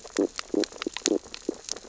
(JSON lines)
{"label": "biophony, stridulation", "recorder": "SoundTrap 600 or HydroMoth"}
{"label": "biophony, sea urchins (Echinidae)", "recorder": "SoundTrap 600 or HydroMoth"}